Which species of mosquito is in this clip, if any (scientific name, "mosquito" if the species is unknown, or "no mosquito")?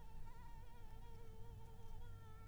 Anopheles arabiensis